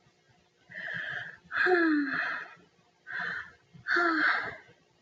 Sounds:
Sigh